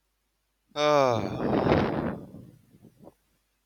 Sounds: Sigh